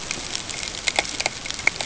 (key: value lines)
label: ambient
recorder: HydroMoth